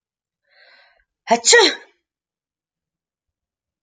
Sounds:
Sneeze